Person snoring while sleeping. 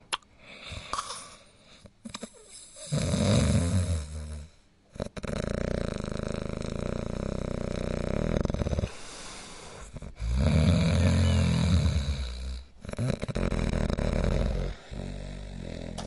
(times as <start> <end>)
2.6 8.9, 10.2 16.1